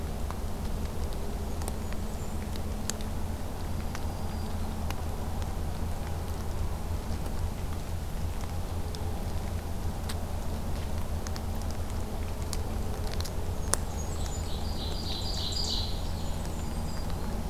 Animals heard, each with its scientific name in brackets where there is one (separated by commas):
Black-throated Green Warbler (Setophaga virens), Ovenbird (Seiurus aurocapilla), Blackburnian Warbler (Setophaga fusca)